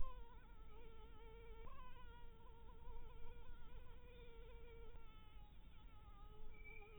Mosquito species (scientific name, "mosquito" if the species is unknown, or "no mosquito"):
Anopheles harrisoni